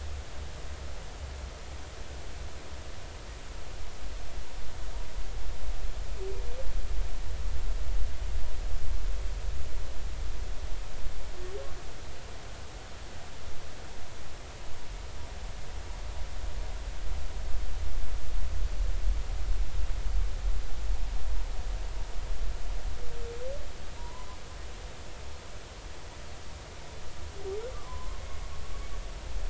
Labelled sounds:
24.0	24.4	humpback whale, 0.90 to 1.1 kHz
27.7	28.2	humpback whale, 0.96 to 1.2 kHz

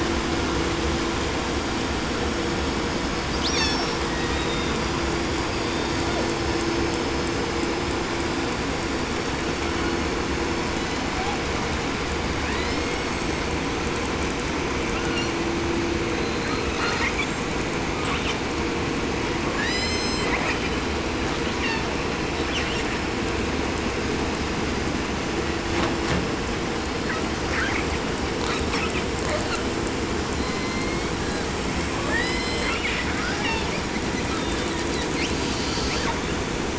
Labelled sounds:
3.4	4.0	killer whale, southern resident, call S36, 1.3 to 8.0 kHz
4.0	5.0	killer whale, southern resident, J pod, call S01, 1.4 to 4.3 kHz
5.4	6.7	killer whale, southern resident, 0.87 to 5.2 kHz
10.7	11.6	killer whale, southern resident, 0.51 to 4.7 kHz
12.3	13.7	killer whale, 0.64 to 8.0 kHz
14.8	15.5	killer whale, 0.64 to 8.0 kHz
16.0	17.5	killer whale, southern resident, 0.52 to 8.0 kHz
17.8	18.5	killer whale, 0.87 to 8.0 kHz
19.4	20.9	killer whale, 0.43 to 8.0 kHz
21.3	22.0	killer whale, southern resident, call S36, 0.59 to 8.0 kHz
22.3	23.1	killer whale, 0.67 to 8.0 kHz
27.0	28.1	killer whale, 0.69 to 7.9 kHz
28.4	29.7	killer whale, 0.52 to 8.0 kHz
30.3	31.6	killer whale, southern resident, J pod, call S01, 0.67 to 6.8 kHz
32.0	33.1	killer whale, southern resident, 0.69 to 8.0 kHz
33.2	33.9	killer whale, southern resident, call S36, 0.68 to 6.0 kHz
34.3	36.2	killer whale, 0.87 to 8.0 kHz

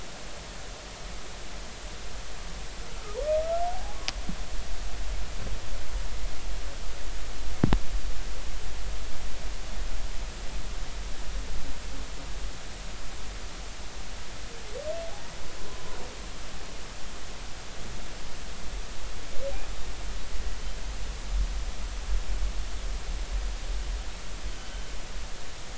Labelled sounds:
2.8	4.0	humpback whale, 0.80 to 1.5 kHz
24.6	24.9	humpback whale, 3.0 to 3.1 kHz

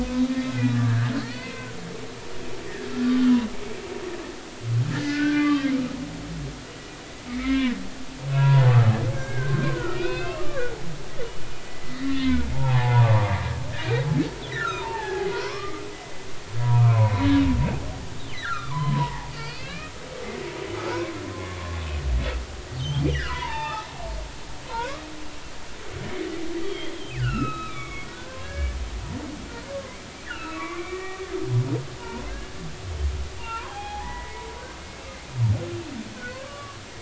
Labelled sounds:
0.3	1.7	humpback whale, 1.1 to 4.6 kHz
4.9	5.7	humpback whale, 1.0 to 4.8 kHz
7.3	7.8	humpback whale, 0.96 to 3.8 kHz
8.3	8.8	humpback whale, 0.83 to 1.4 kHz
9.2	10.7	humpback whale, 1.1 to 3.8 kHz
11.7	14.0	humpback whale, 0.80 to 2.8 kHz
14.5	15.8	humpback whale, 0.80 to 5.6 kHz
16.7	17.4	humpback whale, 0.86 to 4.0 kHz
18.3	19.9	humpback whale, 0.80 to 5.0 kHz
20.9	21.6	humpback whale, 0.93 to 1.2 kHz
22.8	23.9	humpback whale, 0.80 to 3.7 kHz
24.7	25.0	humpback whale, 0.86 to 1.7 kHz
26.6	28.8	humpback whale, 0.93 to 4.1 kHz
29.7	31.2	humpback whale, 0.93 to 2.9 kHz
33.4	34.5	humpback whale, 0.80 to 3.4 kHz
36.2	36.8	humpback whale, 0.99 to 1.6 kHz

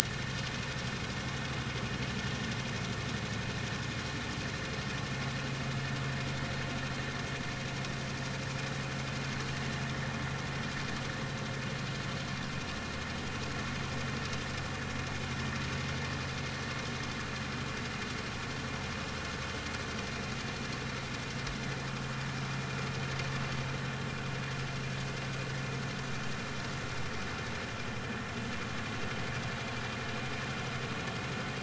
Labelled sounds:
1.0	1.3	vessel noise, 1.7 to 1.9 kHz

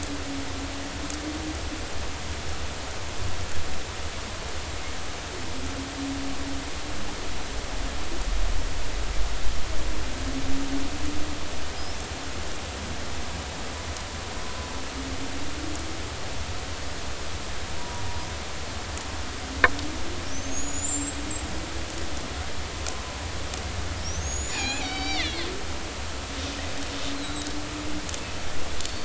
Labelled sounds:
17.8	18.0	killer whale, Bigg's (transient), 0.93 to 1.0 kHz
20.3	21.3	killer whale, Bigg's (transient), 5.8 to 8.0 kHz
24.0	25.5	killer whale, Bigg's (transient), 1.7 to 7.2 kHz
27.2	27.5	killer whale, Bigg's (transient), 3.8 to 4.2 kHz

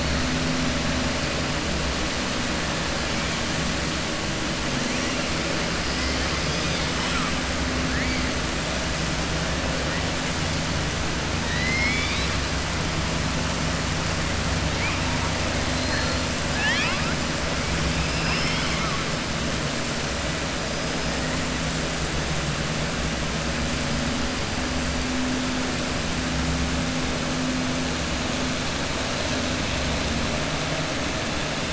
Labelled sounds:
11.4	12.3	killer whale, southern resident, 1.8 to 5.4 kHz
15.7	17.1	killer whale, southern resident, 0.86 to 5.7 kHz

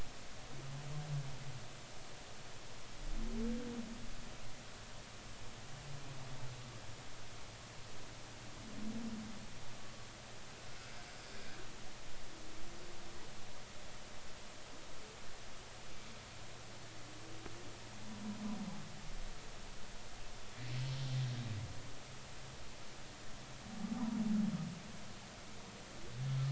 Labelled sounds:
21.3	21.5	humpback whale, 3.6 to 3.9 kHz

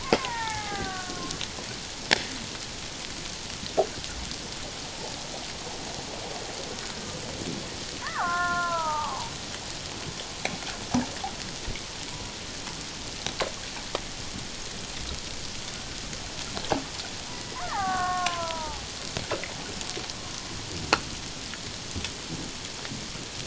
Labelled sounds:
0.2	1.4	killer whale, Bigg's (transient), 0.78 to 2.3 kHz
8.0	9.3	killer whale, Bigg's (transient), 0.78 to 2.1 kHz
17.6	18.8	killer whale, Bigg's (transient), 0.78 to 2.0 kHz

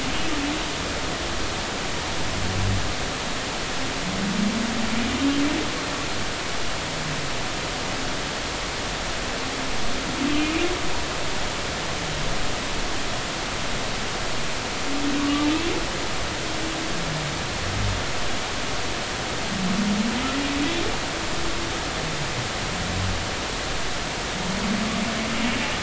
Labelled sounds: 15.2	15.5	humpback whale, 1.1 to 1.2 kHz

